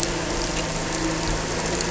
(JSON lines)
{"label": "anthrophony, boat engine", "recorder": "SoundTrap 300"}